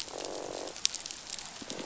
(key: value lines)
label: biophony, croak
recorder: SoundTrap 500

label: biophony
recorder: SoundTrap 500